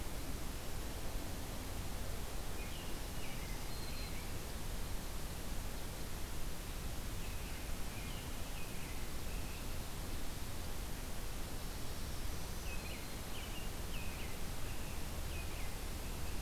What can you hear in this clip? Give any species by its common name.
American Robin, Black-throated Green Warbler